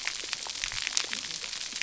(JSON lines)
{"label": "biophony, cascading saw", "recorder": "SoundTrap 300"}